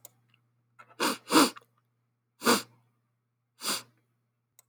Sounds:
Sniff